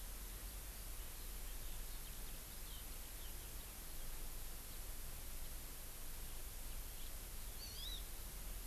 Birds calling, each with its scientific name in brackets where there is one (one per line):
House Finch (Haemorhous mexicanus)
Hawaii Amakihi (Chlorodrepanis virens)